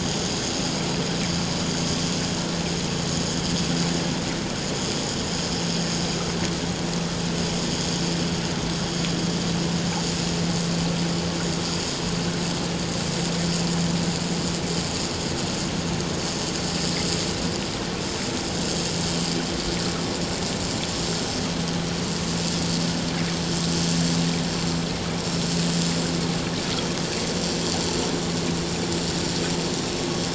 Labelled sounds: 1.3	1.6	vessel noise, 5.9 to 6.1 kHz

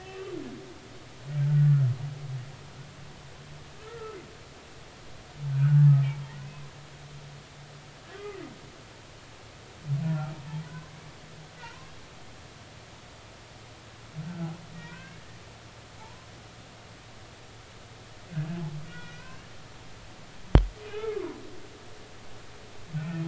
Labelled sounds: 0.0	0.2	humpback whale, 2.6 to 2.7 kHz
1.5	1.9	humpback whale, 1.3 to 1.5 kHz
3.8	4.2	humpback whale, 1.2 to 1.4 kHz
5.5	5.9	humpback whale, 1.2 to 1.7 kHz
8.2	8.5	humpback whale, 1.9 to 2.6 kHz
10.0	10.3	humpback whale, 1.2 to 1.5 kHz
11.6	11.9	humpback whale, 0.86 to 1.2 kHz
14.9	16.3	humpback whale, 0.80 to 2.8 kHz
18.9	19.4	humpback whale, 1.4 to 2.7 kHz
20.8	22.2	humpback whale, 0.93 to 3.1 kHz
23.0	23.2	humpback whale, 1.2 to 2.7 kHz

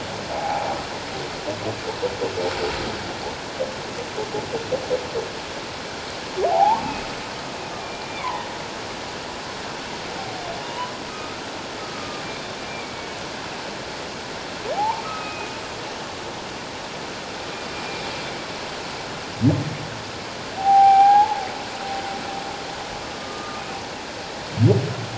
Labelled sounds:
0.3	0.7	humpback whale, 0.78 to 0.94 kHz
6.5	6.8	humpback whale, 0.78 to 1.2 kHz
7.8	8.5	humpback whale, 0.81 to 2.4 kHz
10.6	11.4	humpback whale, 0.94 to 3.0 kHz
11.9	13.0	humpback whale, 1.2 to 3.7 kHz
14.8	15.6	humpback whale, 0.78 to 2.6 kHz
17.7	18.1	humpback whale, 2.3 to 2.4 kHz
20.6	21.4	humpback whale, 0.78 to 2.4 kHz
23.2	23.6	humpback whale, 1.2 to 1.3 kHz

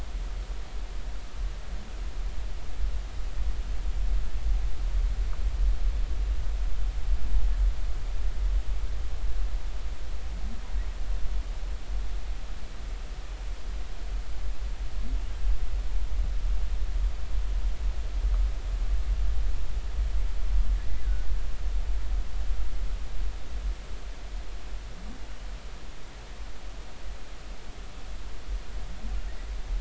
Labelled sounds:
21.0	21.3	humpback whale, 1.4 to 1.8 kHz

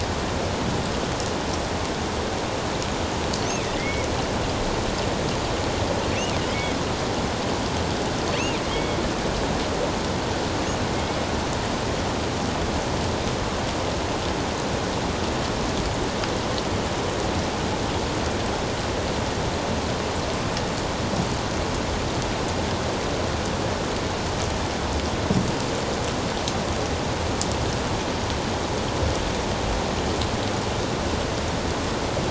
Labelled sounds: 3.8	4.1	killer whale, offshore, 1.9 to 2.3 kHz
6.5	6.8	killer whale, offshore, 2.0 to 2.3 kHz
8.7	9.0	killer whale, offshore, 2.1 to 3.4 kHz
10.9	11.2	killer whale, offshore, 2.1 to 2.2 kHz

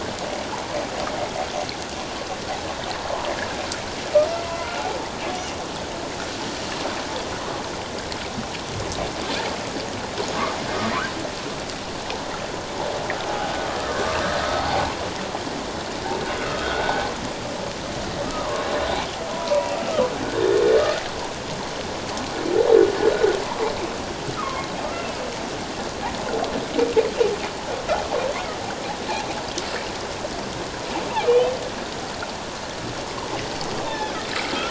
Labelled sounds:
4.4	4.9	humpback whale, 0.94 to 1.5 kHz
13.3	13.5	humpback whale, 0.78 to 0.88 kHz
14.6	14.8	humpback whale, 0.78 to 0.88 kHz
16.4	17.1	humpback whale, 1.2 to 3.3 kHz
18.2	18.7	humpback whale, 0.97 to 1.3 kHz
19.3	20.6	humpback whale, 0.91 to 2.8 kHz
24.4	24.7	humpback whale, 1.0 to 1.4 kHz
31.3	31.5	humpback whale, 2.3 to 2.7 kHz
33.8	34.1	humpback whale, 3.2 to 3.7 kHz

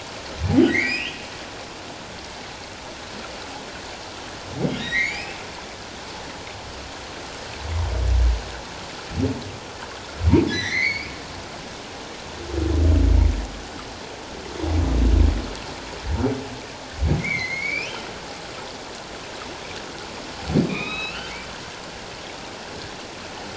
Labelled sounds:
0.7	1.2	humpback whale, 1.8 to 5.3 kHz
4.8	5.4	humpback whale, 1.7 to 5.3 kHz
10.5	11.1	humpback whale, 1.6 to 6.3 kHz
17.2	18.1	humpback whale, 1.9 to 4.3 kHz
20.7	21.3	humpback whale, 0.97 to 4.2 kHz

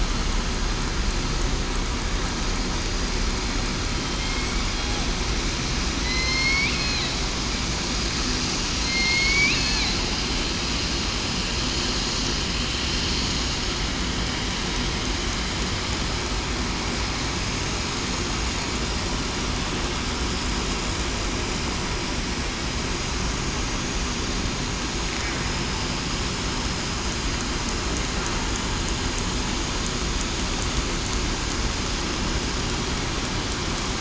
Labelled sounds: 3.9	4.3	killer whale, southern resident, 3.1 to 3.2 kHz
6.0	6.7	killer whale, southern resident, 2.0 to 5.5 kHz
8.8	9.5	killer whale, southern resident, 4.1 to 4.6 kHz

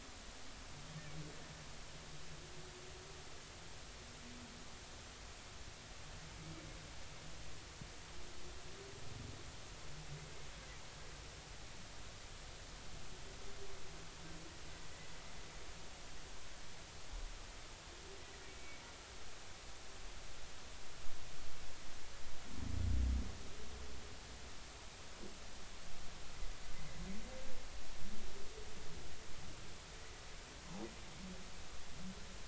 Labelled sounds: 18.4	18.8	humpback whale, 2.2 to 2.4 kHz

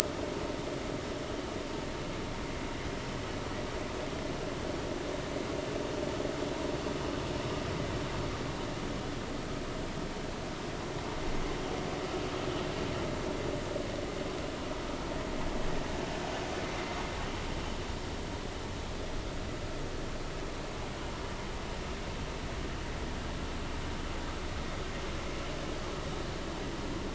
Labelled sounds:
9.0	9.3	vessel noise, 3.2 to 3.5 kHz

